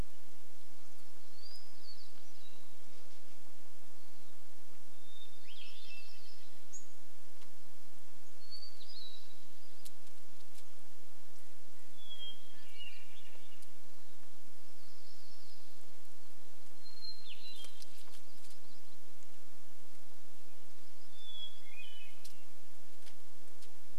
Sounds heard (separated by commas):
unidentified bird chip note, Yellow-rumped Warbler song, Hermit Thrush song, Red-breasted Nuthatch song, Chestnut-backed Chickadee call, warbler song